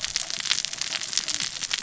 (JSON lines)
{"label": "biophony, cascading saw", "recorder": "SoundTrap 600 or HydroMoth"}